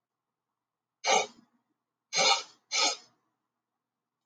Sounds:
Sniff